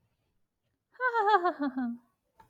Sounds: Laughter